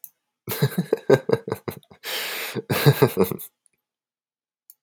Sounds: Laughter